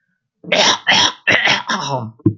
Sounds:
Throat clearing